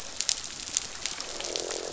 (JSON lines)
{"label": "biophony, croak", "recorder": "SoundTrap 500"}